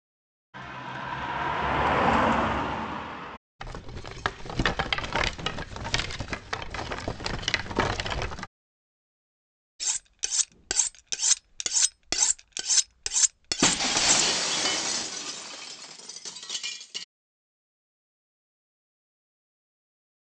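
First, a car passes by. Afterwards, rattling is heard. Next, the sound of cutlery can be heard. Over it, glass shatters.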